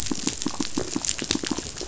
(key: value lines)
label: biophony, pulse
recorder: SoundTrap 500